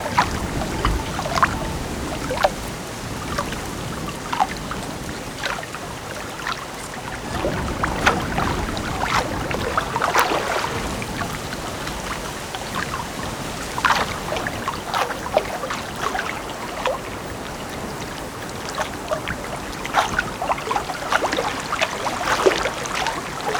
Is there water?
yes